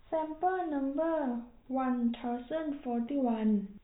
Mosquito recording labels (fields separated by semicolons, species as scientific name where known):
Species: no mosquito; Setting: cup